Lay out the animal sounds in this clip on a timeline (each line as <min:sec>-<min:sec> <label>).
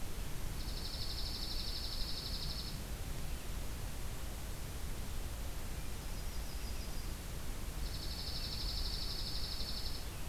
0:00.5-0:02.8 Dark-eyed Junco (Junco hyemalis)
0:05.7-0:07.1 Yellow-rumped Warbler (Setophaga coronata)
0:07.7-0:10.1 Dark-eyed Junco (Junco hyemalis)